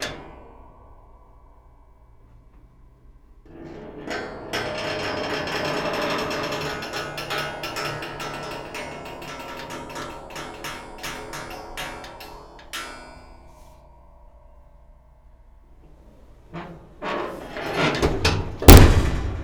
Is metal making most of the noise?
yes